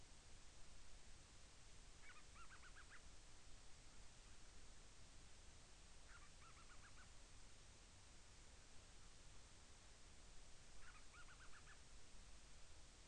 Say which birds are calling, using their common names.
Band-rumped Storm-Petrel